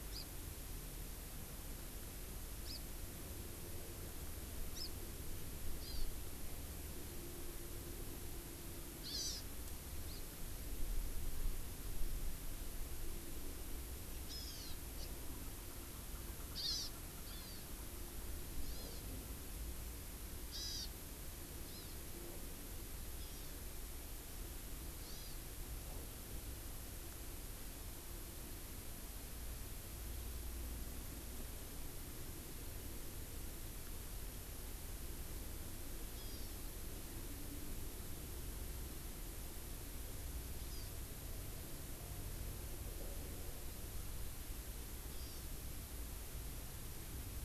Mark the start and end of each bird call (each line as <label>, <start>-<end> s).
Hawaii Amakihi (Chlorodrepanis virens), 0.1-0.3 s
Hawaii Amakihi (Chlorodrepanis virens), 2.6-2.8 s
Hawaii Amakihi (Chlorodrepanis virens), 4.7-4.9 s
Hawaii Amakihi (Chlorodrepanis virens), 5.8-6.1 s
Hawaii Amakihi (Chlorodrepanis virens), 9.0-9.5 s
Hawaii Amakihi (Chlorodrepanis virens), 10.1-10.2 s
Hawaii Amakihi (Chlorodrepanis virens), 14.3-14.7 s
Hawaii Amakihi (Chlorodrepanis virens), 15.0-15.1 s
Erckel's Francolin (Pternistis erckelii), 15.4-18.1 s
Hawaii Amakihi (Chlorodrepanis virens), 16.6-16.9 s
Hawaii Amakihi (Chlorodrepanis virens), 17.3-17.6 s
Hawaii Amakihi (Chlorodrepanis virens), 18.6-19.0 s
Hawaii Amakihi (Chlorodrepanis virens), 20.5-20.9 s
Hawaii Amakihi (Chlorodrepanis virens), 21.7-22.0 s
Hawaii Amakihi (Chlorodrepanis virens), 23.2-23.6 s
Hawaii Amakihi (Chlorodrepanis virens), 25.0-25.4 s
Hawaii Amakihi (Chlorodrepanis virens), 36.1-36.6 s
Hawaii Amakihi (Chlorodrepanis virens), 40.6-41.0 s
Hawaii Amakihi (Chlorodrepanis virens), 45.1-45.5 s